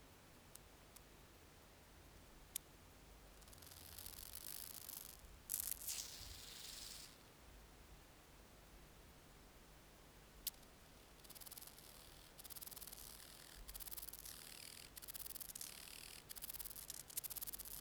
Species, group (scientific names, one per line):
Chorthippus albomarginatus
Orthoptera